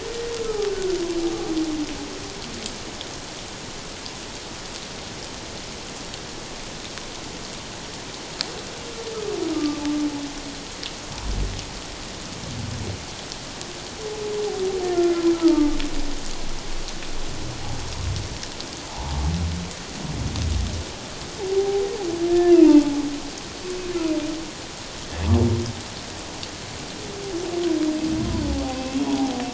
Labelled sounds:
0.4	0.7	humpback whale, 1.2 to 1.4 kHz
9.5	9.8	humpback whale, 1.1 to 1.2 kHz
15.3	15.7	humpback whale, 0.84 to 1.4 kHz
18.9	19.2	humpback whale, 0.78 to 1.0 kHz
21.6	21.8	humpback whale, 0.78 to 0.84 kHz
22.3	23.0	humpback whale, 0.81 to 2.9 kHz
28.7	29.3	humpback whale, 0.78 to 2.8 kHz

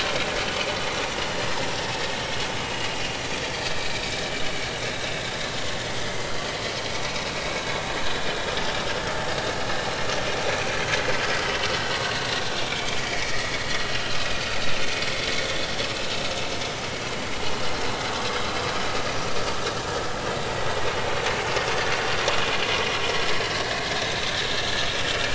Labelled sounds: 3.5	3.8	vessel noise, 4.6 to 5.0 kHz
4.4	4.7	vessel noise, 2.2 to 2.3 kHz
6.0	6.3	vessel noise, 2.0 to 2.1 kHz
12.7	13.4	vessel noise, 2.1 to 2.4 kHz
14.1	14.5	vessel noise, 2.3 to 2.6 kHz
19.2	19.6	vessel noise, 4.5 to 4.7 kHz
23.9	24.3	vessel noise, 3.6 to 4.0 kHz

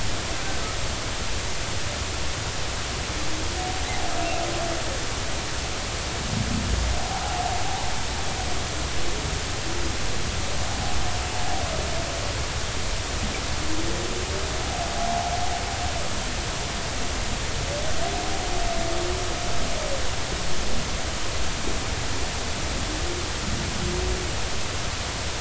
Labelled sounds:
7.0	7.2	humpback whale, 0.80 to 1.0 kHz
15.0	15.3	humpback whale, 0.80 to 0.96 kHz

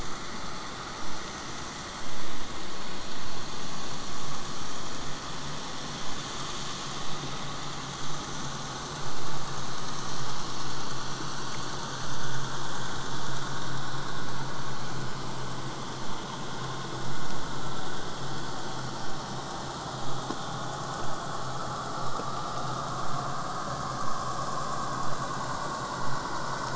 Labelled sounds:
19.0	24.0	vessel noise, 0 to 8.0 kHz

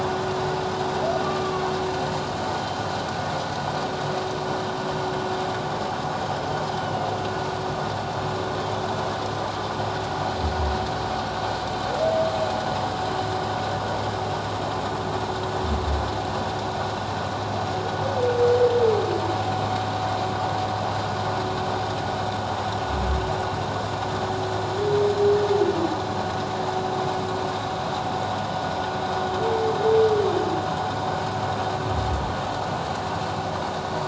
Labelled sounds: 1.2	1.6	humpback whale, 1.1 to 1.2 kHz
6.7	7.1	humpback whale, 2.8 to 3.1 kHz

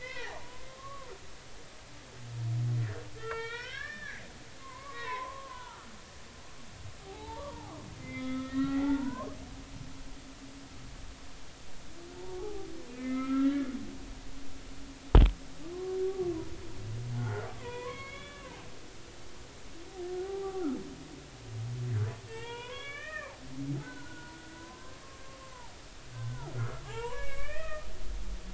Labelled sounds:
0.0	1.1	humpback whale, 0.80 to 5.4 kHz
3.2	5.9	humpback whale, 0.80 to 4.0 kHz
7.0	9.3	humpback whale, 0.80 to 3.9 kHz
12.4	13.7	humpback whale, 0.80 to 2.6 kHz
15.7	16.0	humpback whale, 0.99 to 1.2 kHz
17.1	18.7	humpback whale, 0.80 to 4.0 kHz
20.2	20.6	humpback whale, 0.80 to 0.86 kHz
22.2	23.4	humpback whale, 0.86 to 3.6 kHz
23.8	24.4	humpback whale, 0.93 to 1.6 kHz
25.5	27.9	humpback whale, 0.80 to 8.0 kHz

